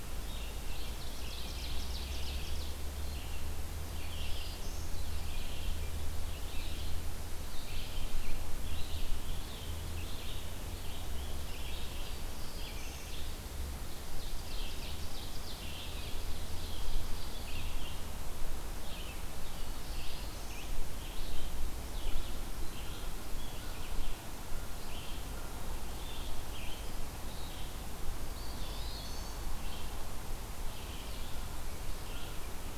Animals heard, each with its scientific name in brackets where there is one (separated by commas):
Eastern Wood-Pewee (Contopus virens), Black-throated Blue Warbler (Setophaga caerulescens), Ovenbird (Seiurus aurocapilla), Red-eyed Vireo (Vireo olivaceus)